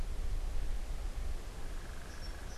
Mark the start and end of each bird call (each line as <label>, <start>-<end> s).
unidentified bird, 1.6-2.6 s
Song Sparrow (Melospiza melodia), 1.8-2.6 s